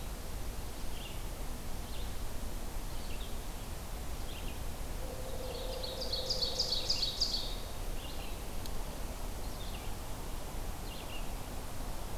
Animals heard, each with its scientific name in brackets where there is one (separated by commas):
Red-eyed Vireo (Vireo olivaceus), Ovenbird (Seiurus aurocapilla)